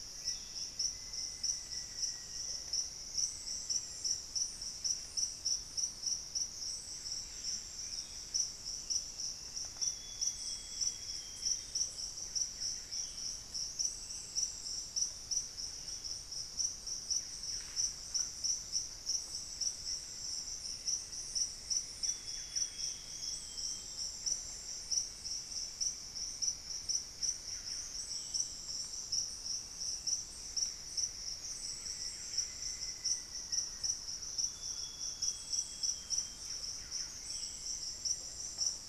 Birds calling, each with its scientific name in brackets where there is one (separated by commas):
Cinnamon-throated Woodcreeper (Dendrexetastes rufigula), Thrush-like Wren (Campylorhynchus turdinus), Buff-breasted Wren (Cantorchilus leucotis), Amazonian Grosbeak (Cyanoloxia rothschildii), Black-faced Antthrush (Formicarius analis), unidentified bird